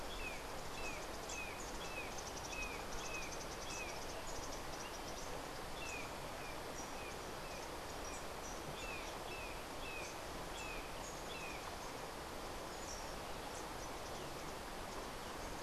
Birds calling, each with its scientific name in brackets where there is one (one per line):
Brown Jay (Psilorhinus morio)